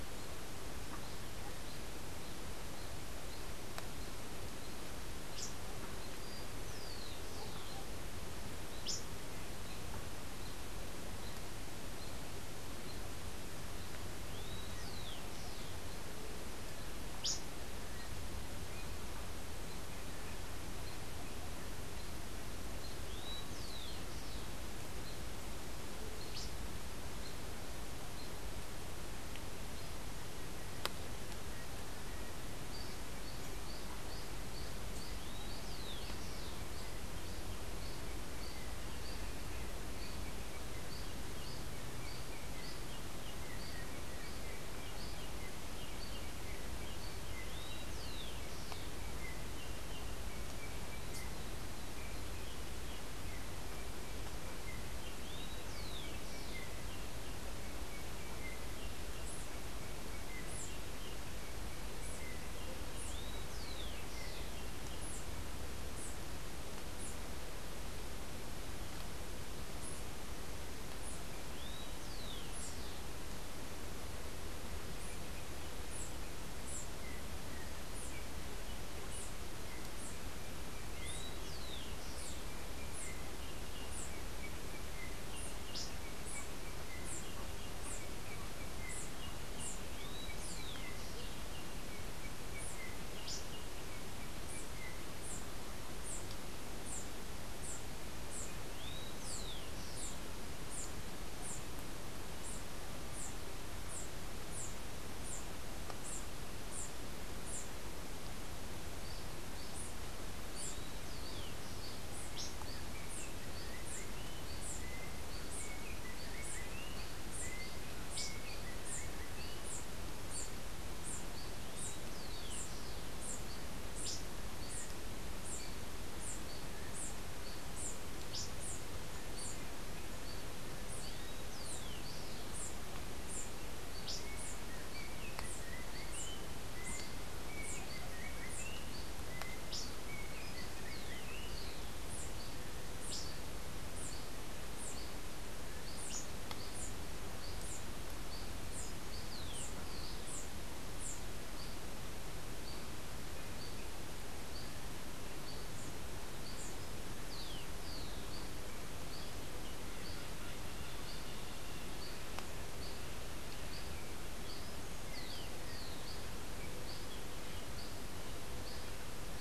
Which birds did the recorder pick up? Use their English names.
Rufous-collared Sparrow, Yellow-backed Oriole